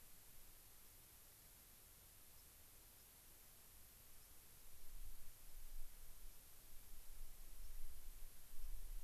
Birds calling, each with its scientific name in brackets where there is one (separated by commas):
White-crowned Sparrow (Zonotrichia leucophrys)